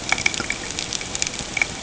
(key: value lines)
label: ambient
recorder: HydroMoth